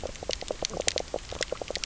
{"label": "biophony, knock croak", "recorder": "SoundTrap 300"}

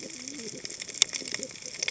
{"label": "biophony, cascading saw", "recorder": "HydroMoth"}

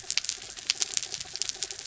{"label": "anthrophony, mechanical", "recorder": "SoundTrap 300"}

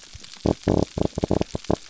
{"label": "biophony", "recorder": "SoundTrap 300"}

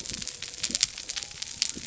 {"label": "biophony", "recorder": "SoundTrap 300"}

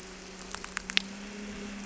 {"label": "anthrophony, boat engine", "recorder": "SoundTrap 300"}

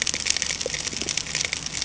{"label": "ambient", "recorder": "HydroMoth"}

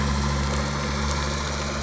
{"label": "anthrophony, boat engine", "recorder": "SoundTrap 300"}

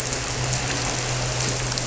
{"label": "anthrophony, boat engine", "recorder": "SoundTrap 300"}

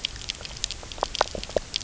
{"label": "biophony", "recorder": "SoundTrap 300"}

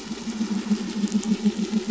{"label": "anthrophony, boat engine", "recorder": "SoundTrap 500"}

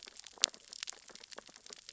{"label": "biophony, sea urchins (Echinidae)", "recorder": "SoundTrap 600 or HydroMoth"}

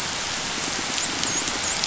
{"label": "biophony, dolphin", "recorder": "SoundTrap 500"}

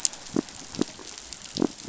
{"label": "biophony", "recorder": "SoundTrap 500"}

